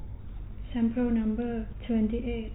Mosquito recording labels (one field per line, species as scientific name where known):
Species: no mosquito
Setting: cup